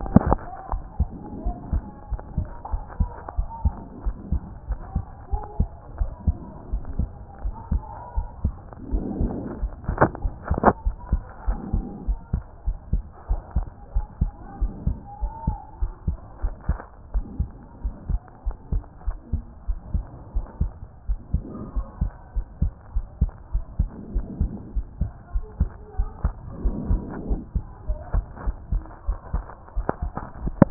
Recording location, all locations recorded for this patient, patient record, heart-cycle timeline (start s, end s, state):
pulmonary valve (PV)
aortic valve (AV)+pulmonary valve (PV)+tricuspid valve (TV)+mitral valve (MV)
#Age: Child
#Sex: Male
#Height: 115.0 cm
#Weight: 19.8 kg
#Pregnancy status: False
#Murmur: Absent
#Murmur locations: nan
#Most audible location: nan
#Systolic murmur timing: nan
#Systolic murmur shape: nan
#Systolic murmur grading: nan
#Systolic murmur pitch: nan
#Systolic murmur quality: nan
#Diastolic murmur timing: nan
#Diastolic murmur shape: nan
#Diastolic murmur grading: nan
#Diastolic murmur pitch: nan
#Diastolic murmur quality: nan
#Outcome: Abnormal
#Campaign: 2014 screening campaign
0.00	0.72	unannotated
0.72	0.82	S1
0.82	0.98	systole
0.98	1.08	S2
1.08	1.44	diastole
1.44	1.56	S1
1.56	1.72	systole
1.72	1.82	S2
1.82	2.10	diastole
2.10	2.20	S1
2.20	2.36	systole
2.36	2.48	S2
2.48	2.72	diastole
2.72	2.82	S1
2.82	2.98	systole
2.98	3.10	S2
3.10	3.38	diastole
3.38	3.48	S1
3.48	3.64	systole
3.64	3.74	S2
3.74	4.04	diastole
4.04	4.16	S1
4.16	4.30	systole
4.30	4.42	S2
4.42	4.68	diastole
4.68	4.80	S1
4.80	4.94	systole
4.94	5.04	S2
5.04	5.32	diastole
5.32	5.42	S1
5.42	5.58	systole
5.58	5.68	S2
5.68	5.98	diastole
5.98	6.10	S1
6.10	6.26	systole
6.26	6.36	S2
6.36	6.72	diastole
6.72	6.82	S1
6.82	6.98	systole
6.98	7.08	S2
7.08	7.44	diastole
7.44	7.54	S1
7.54	7.70	systole
7.70	7.82	S2
7.82	8.16	diastole
8.16	8.28	S1
8.28	8.44	systole
8.44	8.54	S2
8.54	8.92	diastole
8.92	9.04	S1
9.04	9.20	systole
9.20	9.34	S2
9.34	9.62	diastole
9.62	9.72	S1
9.72	9.88	systole
9.88	9.98	S2
9.98	10.24	diastole
10.24	10.34	S1
10.34	10.50	systole
10.50	10.58	S2
10.58	10.86	diastole
10.86	10.96	S1
10.96	11.10	systole
11.10	11.22	S2
11.22	11.48	diastole
11.48	11.58	S1
11.58	11.72	systole
11.72	11.84	S2
11.84	12.08	diastole
12.08	12.18	S1
12.18	12.32	systole
12.32	12.42	S2
12.42	12.66	diastole
12.66	12.78	S1
12.78	12.92	systole
12.92	13.02	S2
13.02	13.30	diastole
13.30	13.40	S1
13.40	13.56	systole
13.56	13.66	S2
13.66	13.94	diastole
13.94	14.06	S1
14.06	14.20	systole
14.20	14.32	S2
14.32	14.60	diastole
14.60	14.72	S1
14.72	14.86	systole
14.86	14.98	S2
14.98	15.22	diastole
15.22	15.32	S1
15.32	15.46	systole
15.46	15.58	S2
15.58	15.80	diastole
15.80	15.92	S1
15.92	16.06	systole
16.06	16.16	S2
16.16	16.42	diastole
16.42	16.54	S1
16.54	16.68	systole
16.68	16.78	S2
16.78	17.14	diastole
17.14	17.26	S1
17.26	17.38	systole
17.38	17.48	S2
17.48	17.84	diastole
17.84	17.94	S1
17.94	18.10	systole
18.10	18.20	S2
18.20	18.46	diastole
18.46	18.56	S1
18.56	18.72	systole
18.72	18.84	S2
18.84	19.06	diastole
19.06	19.16	S1
19.16	19.32	systole
19.32	19.42	S2
19.42	19.68	diastole
19.68	19.78	S1
19.78	19.92	systole
19.92	20.04	S2
20.04	20.34	diastole
20.34	20.46	S1
20.46	20.60	systole
20.60	20.72	S2
20.72	21.08	diastole
21.08	21.18	S1
21.18	21.32	systole
21.32	21.42	S2
21.42	21.76	diastole
21.76	21.86	S1
21.86	22.00	systole
22.00	22.12	S2
22.12	22.36	diastole
22.36	22.46	S1
22.46	22.60	systole
22.60	22.72	S2
22.72	22.96	diastole
22.96	23.06	S1
23.06	23.20	systole
23.20	23.32	S2
23.32	23.54	diastole
23.54	23.64	S1
23.64	23.78	systole
23.78	23.88	S2
23.88	24.14	diastole
24.14	24.26	S1
24.26	24.40	systole
24.40	24.50	S2
24.50	24.76	diastole
24.76	24.86	S1
24.86	25.00	systole
25.00	25.10	S2
25.10	25.34	diastole
25.34	25.44	S1
25.44	25.60	systole
25.60	25.70	S2
25.70	25.98	diastole
25.98	26.10	S1
26.10	26.24	systole
26.24	26.34	S2
26.34	26.64	diastole
26.64	26.76	S1
26.76	26.88	systole
26.88	27.02	S2
27.02	27.28	diastole
27.28	27.40	S1
27.40	27.54	systole
27.54	27.64	S2
27.64	27.88	diastole
27.88	28.00	S1
28.00	28.14	systole
28.14	28.24	S2
28.24	28.46	diastole
28.46	28.56	S1
28.56	28.72	systole
28.72	28.82	S2
28.82	29.08	diastole
29.08	29.18	S1
29.18	29.32	systole
29.32	29.44	S2
29.44	29.76	diastole
29.76	30.70	unannotated